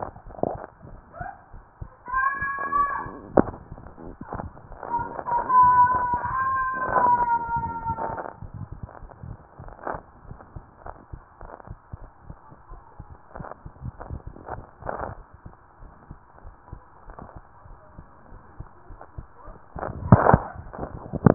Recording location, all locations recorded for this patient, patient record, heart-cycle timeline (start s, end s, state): tricuspid valve (TV)
pulmonary valve (PV)+tricuspid valve (TV)
#Age: Child
#Sex: Female
#Height: 136.0 cm
#Weight: 39.2 kg
#Pregnancy status: False
#Murmur: Absent
#Murmur locations: nan
#Most audible location: nan
#Systolic murmur timing: nan
#Systolic murmur shape: nan
#Systolic murmur grading: nan
#Systolic murmur pitch: nan
#Systolic murmur quality: nan
#Diastolic murmur timing: nan
#Diastolic murmur shape: nan
#Diastolic murmur grading: nan
#Diastolic murmur pitch: nan
#Diastolic murmur quality: nan
#Outcome: Normal
#Campaign: 2015 screening campaign
0.00	10.81	unannotated
10.81	10.96	S1
10.96	11.10	systole
11.10	11.22	S2
11.22	11.38	diastole
11.38	11.56	S1
11.56	11.67	systole
11.67	11.79	S2
11.79	12.00	diastole
12.00	12.09	S1
12.09	12.26	systole
12.26	12.38	S2
12.38	12.69	diastole
12.69	12.81	S1
12.81	12.97	systole
12.97	13.06	S2
13.06	13.35	diastole
13.35	13.45	S1
13.45	13.63	systole
13.63	13.72	S2
13.72	13.99	diastole
13.99	14.08	S1
14.08	14.23	systole
14.23	14.32	S2
14.32	14.56	diastole
14.56	14.65	S1
14.65	21.34	unannotated